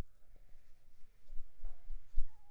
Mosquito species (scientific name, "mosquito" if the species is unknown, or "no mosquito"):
Anopheles arabiensis